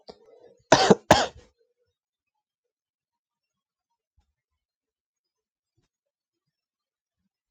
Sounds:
Cough